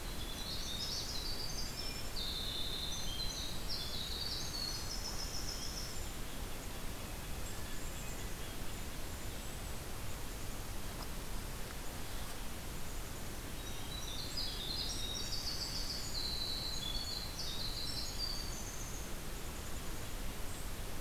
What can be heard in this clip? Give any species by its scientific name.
Troglodytes hiemalis, Poecile atricapillus, Sitta canadensis, Regulus satrapa